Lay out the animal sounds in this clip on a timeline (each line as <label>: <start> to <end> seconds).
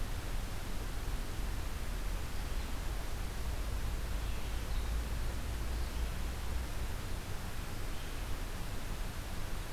Red-eyed Vireo (Vireo olivaceus): 0.0 to 9.7 seconds